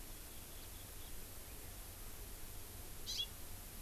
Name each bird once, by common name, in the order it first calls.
Hawaii Amakihi